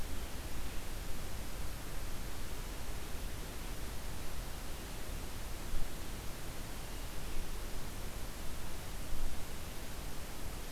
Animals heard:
forest ambience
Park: Marsh-Billings-Rockefeller National Historical Park